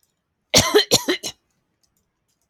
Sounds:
Cough